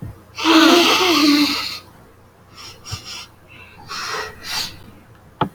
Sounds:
Sniff